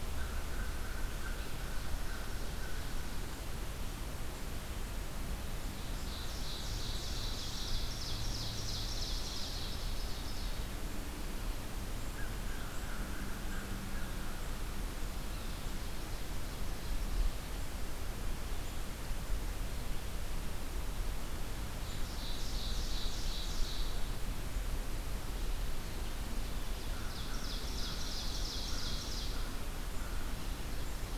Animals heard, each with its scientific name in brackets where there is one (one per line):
Ovenbird (Seiurus aurocapilla)
American Crow (Corvus brachyrhynchos)